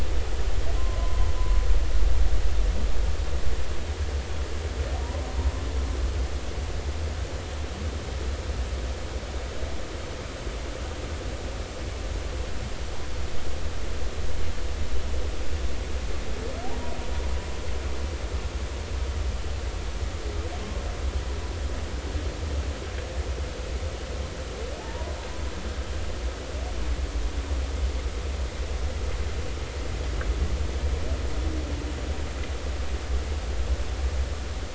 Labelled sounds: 0.8	1.3	humpback whale, 0.96 to 1.1 kHz
5.0	5.3	humpback whale, 0.90 to 1.1 kHz
24.8	25.2	humpback whale, 0.80 to 1.1 kHz

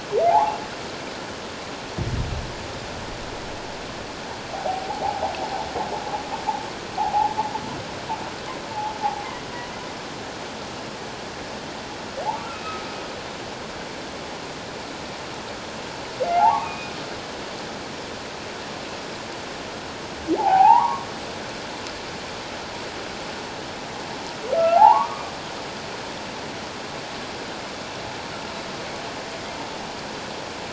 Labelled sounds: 0.3	0.6	humpback whale, 0.78 to 1.2 kHz
4.5	5.3	humpback whale, 0.78 to 1.0 kHz
7.0	7.3	humpback whale, 0.78 to 0.97 kHz
12.5	12.8	humpback whale, 2.5 to 3.9 kHz
16.3	16.9	humpback whale, 0.78 to 2.6 kHz
20.4	21.1	humpback whale, 0.78 to 1.2 kHz
24.6	25.3	humpback whale, 0.78 to 1.4 kHz

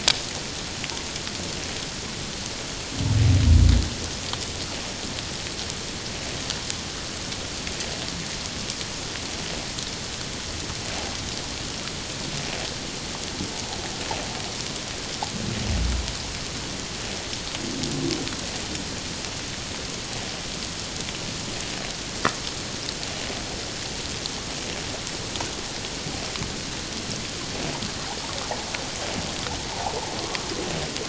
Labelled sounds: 29.7	30.5	water noise, 0.78 to 1.2 kHz

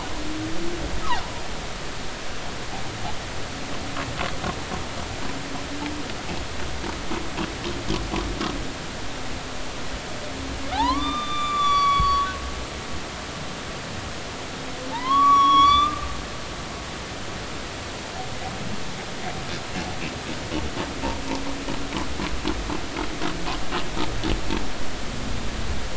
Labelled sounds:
10.7	12.3	humpback whale, 0.80 to 7.1 kHz
14.9	16.0	humpback whale, 0.83 to 5.9 kHz

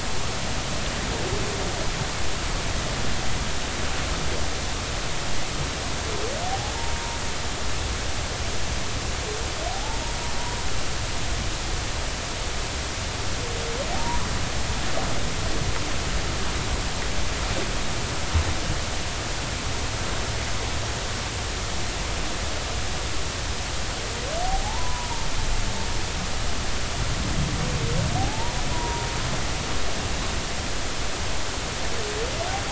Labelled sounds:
6.5	7.2	humpback whale, 0.80 to 1.0 kHz
9.7	10.0	humpback whale, 0.80 to 0.96 kHz
24.4	25.3	humpback whale, 0.80 to 1.1 kHz
28.2	29.1	humpback whale, 0.80 to 1.1 kHz

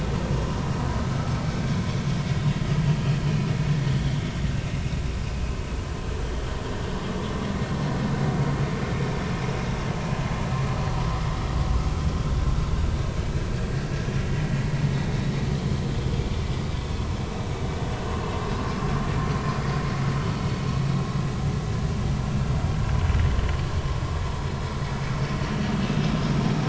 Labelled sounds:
6.3	6.6	vessel noise, 3.1 to 3.3 kHz

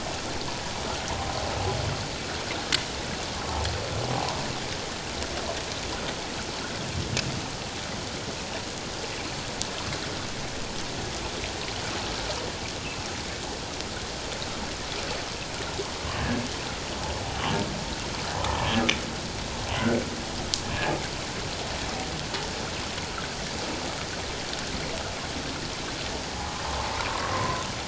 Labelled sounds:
16.2	16.4	humpback whale, 1.6 to 1.8 kHz
19.8	20.0	humpback whale, 1.3 to 1.6 kHz
27.3	27.6	humpback whale, 0.97 to 1.1 kHz

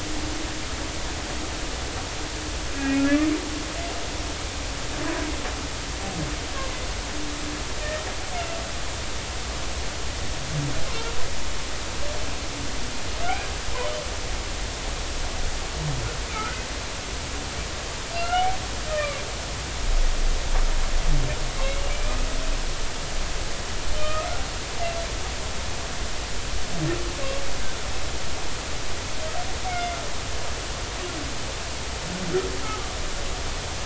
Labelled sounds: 2.8	3.1	humpback whale, 2.4 to 2.5 kHz
13.2	13.5	humpback whale, 1.3 to 1.7 kHz
16.3	16.7	humpback whale, 1.2 to 1.6 kHz
18.1	19.2	humpback whale, 1.1 to 3.0 kHz
21.9	22.2	humpback whale, 2.2 to 2.5 kHz
24.0	24.3	humpback whale, 1.1 to 1.3 kHz
29.7	30.0	humpback whale, 2.0 to 2.2 kHz

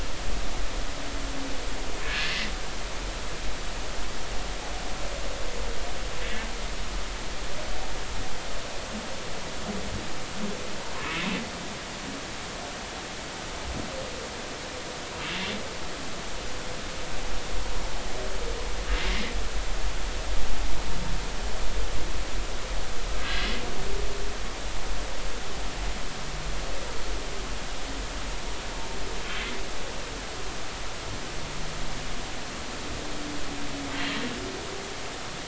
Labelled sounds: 2.0	2.3	humpback whale, 1.6 to 1.8 kHz
23.2	23.5	humpback whale, 1.5 to 1.7 kHz

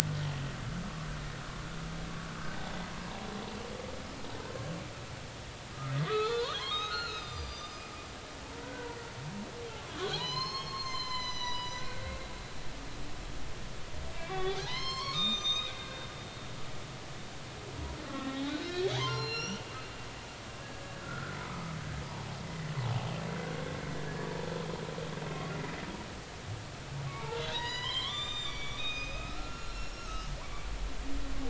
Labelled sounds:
5.9	7.8	humpback whale, 0.96 to 6.2 kHz
8.6	9.0	humpback whale, 0.90 to 1.6 kHz
10.1	12.1	humpback whale, 0.93 to 7.4 kHz
14.1	16.1	humpback whale, 0.80 to 6.5 kHz
18.1	19.7	humpback whale, 0.80 to 6.0 kHz
20.6	21.8	humpback whale, 1.1 to 1.7 kHz
22.5	22.7	humpback whale, 1.8 to 2.0 kHz
25.3	25.5	humpback whale, 1.0 to 1.2 kHz
27.2	30.7	humpback whale, 0.83 to 7.4 kHz

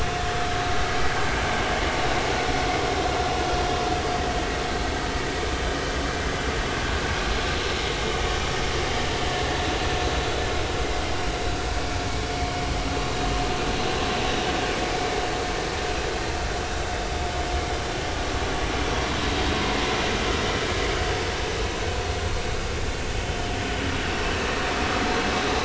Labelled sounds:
7.2	7.5	vessel noise, 4.1 to 4.2 kHz

